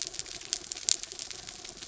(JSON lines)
{"label": "anthrophony, mechanical", "recorder": "SoundTrap 300"}